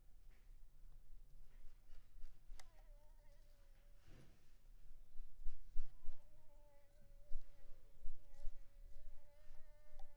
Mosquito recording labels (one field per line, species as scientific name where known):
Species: Anopheles coustani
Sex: female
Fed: blood-fed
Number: one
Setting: cup